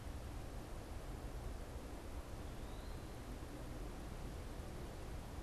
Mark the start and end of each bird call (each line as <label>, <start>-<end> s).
Eastern Wood-Pewee (Contopus virens), 2.6-5.4 s